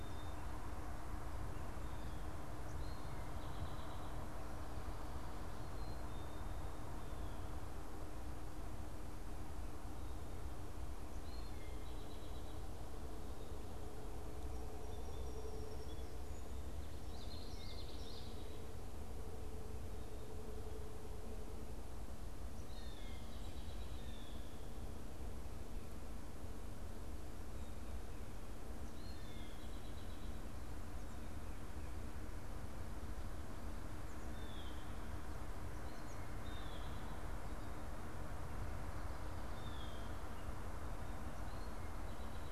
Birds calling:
Song Sparrow (Melospiza melodia), Eastern Towhee (Pipilo erythrophthalmus), unidentified bird, Common Yellowthroat (Geothlypis trichas), Blue Jay (Cyanocitta cristata)

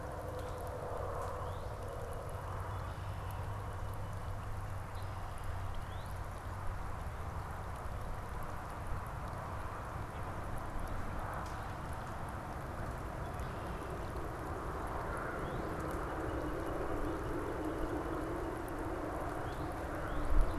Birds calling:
Northern Cardinal (Cardinalis cardinalis), Red-winged Blackbird (Agelaius phoeniceus)

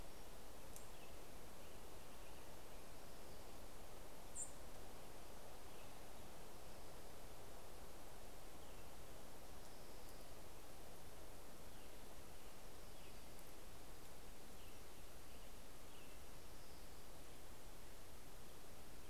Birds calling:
American Robin (Turdus migratorius), Orange-crowned Warbler (Leiothlypis celata), Fox Sparrow (Passerella iliaca)

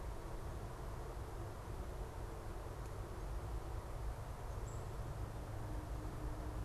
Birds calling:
Black-capped Chickadee (Poecile atricapillus)

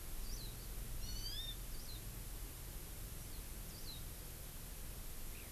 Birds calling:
Warbling White-eye (Zosterops japonicus), Hawaii Amakihi (Chlorodrepanis virens)

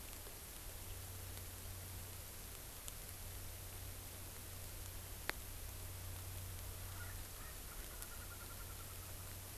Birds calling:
Erckel's Francolin (Pternistis erckelii)

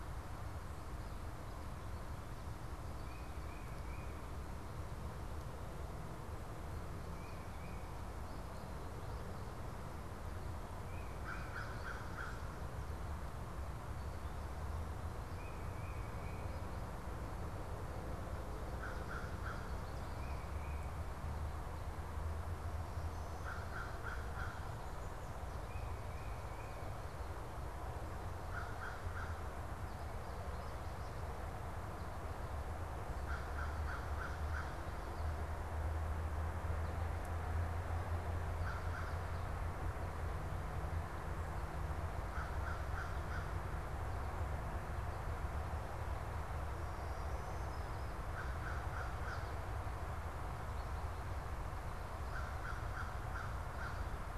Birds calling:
American Crow (Corvus brachyrhynchos), Black-throated Green Warbler (Setophaga virens), American Goldfinch (Spinus tristis), Tufted Titmouse (Baeolophus bicolor)

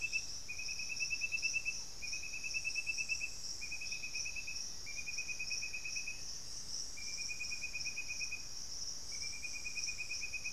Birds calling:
Black-faced Antthrush (Formicarius analis), unidentified bird

